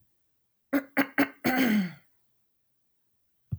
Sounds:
Throat clearing